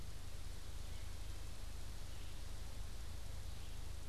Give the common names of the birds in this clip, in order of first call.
Red-eyed Vireo